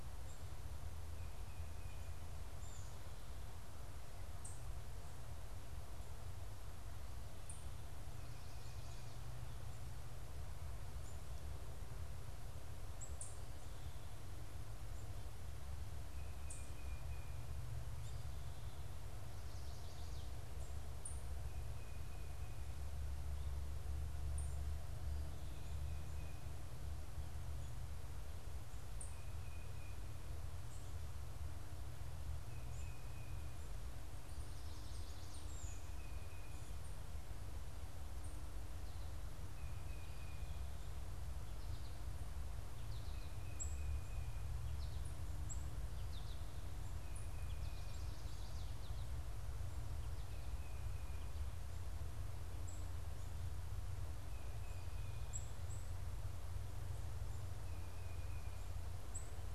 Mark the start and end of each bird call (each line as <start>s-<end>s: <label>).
4.0s-13.8s: unidentified bird
28.7s-36.6s: Tufted Titmouse (Baeolophus bicolor)
52.1s-59.5s: unidentified bird